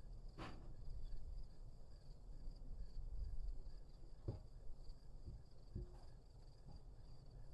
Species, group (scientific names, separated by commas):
Neocurtilla hexadactyla, Orthoptera